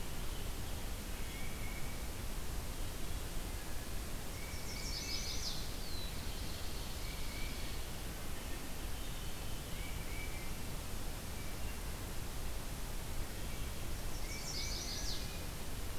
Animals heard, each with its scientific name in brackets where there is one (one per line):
Black-throated Blue Warbler (Setophaga caerulescens)
Chestnut-sided Warbler (Setophaga pensylvanica)
Tufted Titmouse (Baeolophus bicolor)
Wood Thrush (Hylocichla mustelina)
Ovenbird (Seiurus aurocapilla)